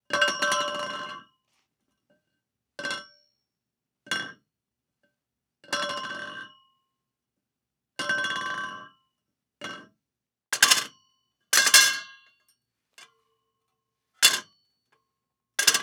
does the metal change in how it is hitting a surface?
yes